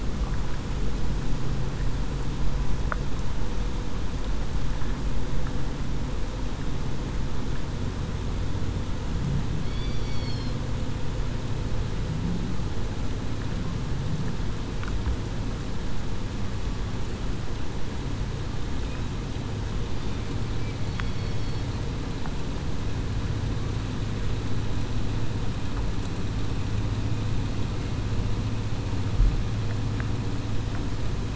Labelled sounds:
9.7	10.1	killer whale, southern resident, 3.3 to 3.5 kHz

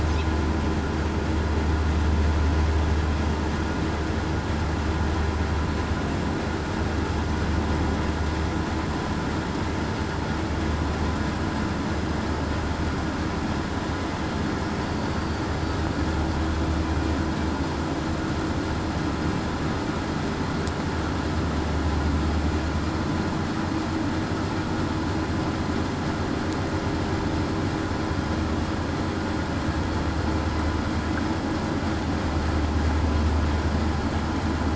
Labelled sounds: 14.8	15.5	killer whale, southern resident, 4.5 to 4.7 kHz

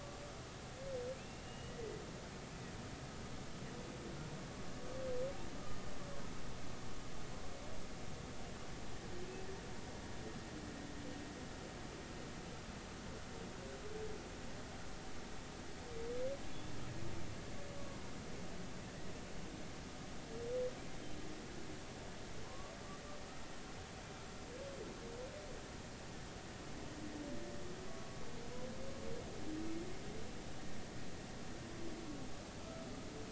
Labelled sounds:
1.1	2.0	humpback whale, 1.9 to 2.9 kHz
17.8	18.0	humpback whale, 1.0 to 1.2 kHz
22.4	22.7	humpback whale, 0.96 to 1.2 kHz
27.9	28.2	humpback whale, 1.1 to 1.2 kHz
32.6	32.8	humpback whale, 1.2 to 1.4 kHz

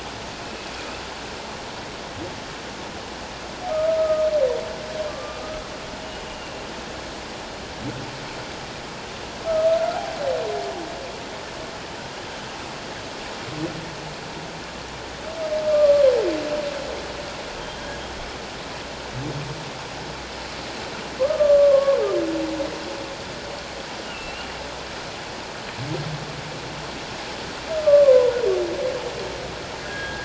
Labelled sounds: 3.7	4.3	humpback whale, 1.2 to 1.3 kHz
5.1	5.4	humpback whale, 1.1 to 1.2 kHz
6.3	6.6	humpback whale, 2.7 to 3.0 kHz
15.7	16.1	humpback whale, 1.1 to 1.2 kHz
17.6	17.9	humpback whale, 3.1 to 3.3 kHz
21.2	22.0	humpback whale, 1.0 to 1.3 kHz
24.0	24.5	humpback whale, 2.6 to 3.0 kHz
27.8	28.3	humpback whale, 0.91 to 1.2 kHz

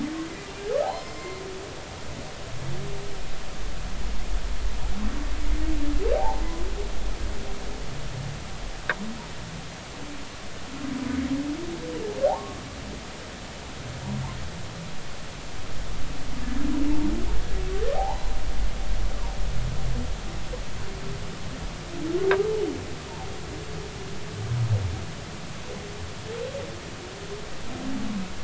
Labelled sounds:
0.8	1.4	humpback whale, 0.80 to 5.3 kHz
6.1	6.4	humpback whale, 0.80 to 1.0 kHz
12.3	12.6	humpback whale, 0.80 to 1.2 kHz
17.9	18.4	humpback whale, 0.80 to 4.1 kHz

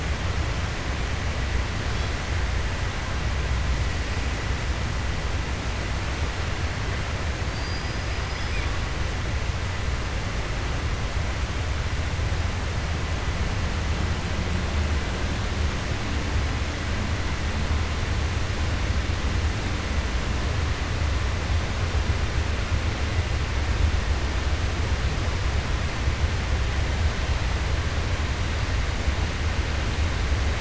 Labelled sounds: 7.4	8.6	killer whale, 4.1 to 6.0 kHz

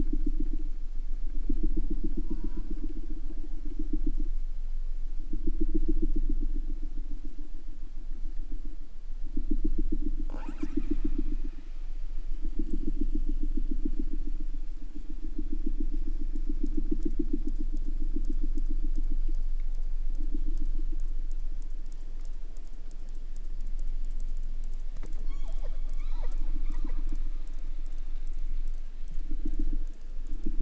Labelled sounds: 2.3	2.9	killer whale, southern resident, J pod, call S04, 0.65 to 4.3 kHz
10.2	11.7	killer whale, southern resident, call S08ii, 0.36 to 8.0 kHz
25.1	27.1	killer whale, 0.32 to 7.4 kHz

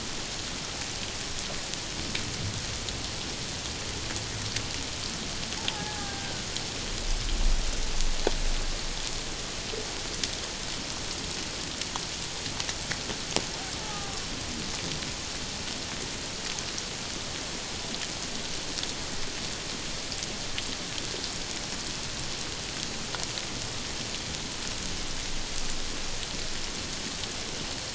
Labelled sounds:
5.7	6.3	killer whale, Bigg's (transient), 0.78 to 1.7 kHz
13.8	14.2	killer whale, Bigg's (transient), 0.78 to 1.3 kHz

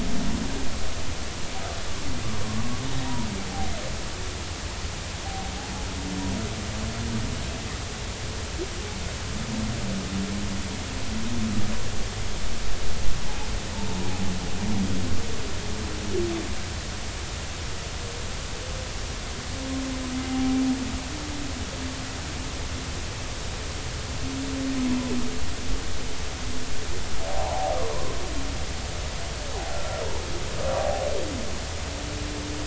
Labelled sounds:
20.3	20.6	humpback whale, 0.80 to 0.83 kHz
27.3	28.1	humpback whale, 0.80 to 1.2 kHz
29.7	30.0	humpback whale, 1.3 to 1.4 kHz

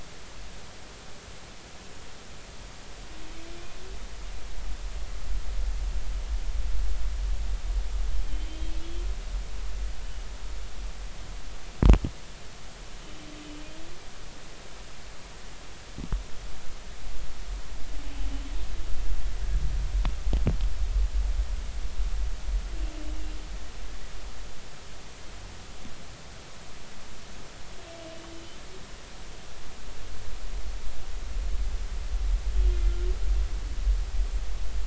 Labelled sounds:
8.5	8.7	humpback whale, 3.1 to 3.3 kHz
32.8	33.1	humpback whale, 1.3 to 1.4 kHz

